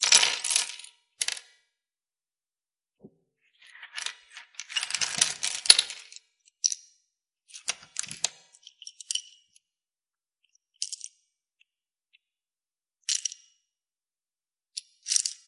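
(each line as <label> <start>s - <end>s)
Small pieces are falling on a wooden table indoors. 0.0s - 1.4s
Small pieces fall on a wooden table indoors. 3.7s - 6.8s
Jewels dropping on a wooden table. 7.5s - 9.2s
Small pieces are falling on the table continuously. 10.7s - 11.1s
Small pieces are dropping on a table. 13.0s - 13.5s
Small pieces are dropping on a table. 14.7s - 15.5s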